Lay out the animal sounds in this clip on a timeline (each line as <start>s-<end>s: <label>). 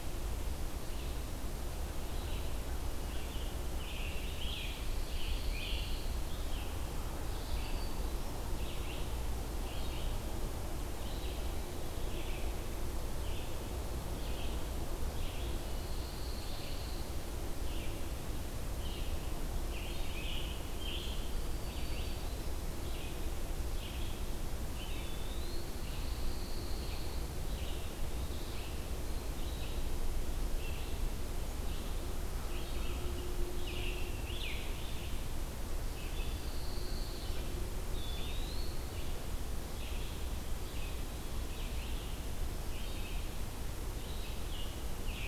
0.0s-45.3s: Red-eyed Vireo (Vireo olivaceus)
3.8s-6.0s: Scarlet Tanager (Piranga olivacea)
4.9s-6.2s: Pine Warbler (Setophaga pinus)
7.3s-8.3s: Black-throated Green Warbler (Setophaga virens)
15.7s-17.1s: Pine Warbler (Setophaga pinus)
19.5s-21.2s: Scarlet Tanager (Piranga olivacea)
21.4s-22.6s: Black-throated Green Warbler (Setophaga virens)
24.7s-25.7s: Eastern Wood-Pewee (Contopus virens)
25.9s-27.2s: Pine Warbler (Setophaga pinus)
33.4s-35.1s: Scarlet Tanager (Piranga olivacea)
36.2s-37.3s: Pine Warbler (Setophaga pinus)
37.9s-38.8s: Eastern Wood-Pewee (Contopus virens)
43.9s-45.3s: Scarlet Tanager (Piranga olivacea)